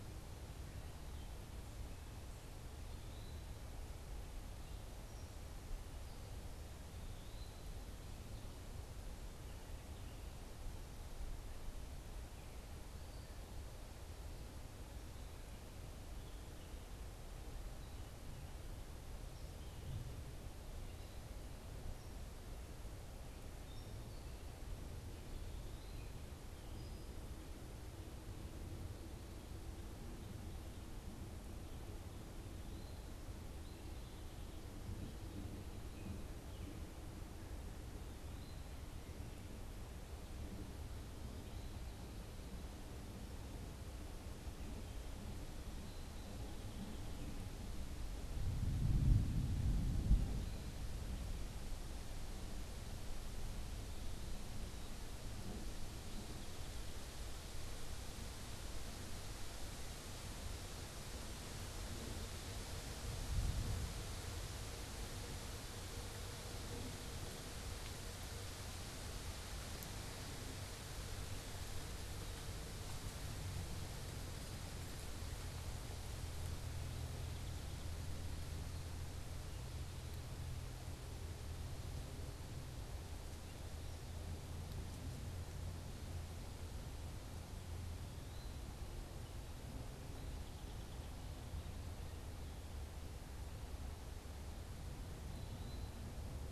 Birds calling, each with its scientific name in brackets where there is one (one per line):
Song Sparrow (Melospiza melodia)
American Goldfinch (Spinus tristis)
unidentified bird
Eastern Wood-Pewee (Contopus virens)